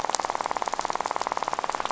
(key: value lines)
label: biophony, rattle
recorder: SoundTrap 500